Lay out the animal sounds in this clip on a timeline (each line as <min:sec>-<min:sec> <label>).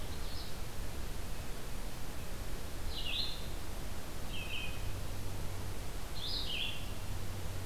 0:00.0-0:07.7 Red-eyed Vireo (Vireo olivaceus)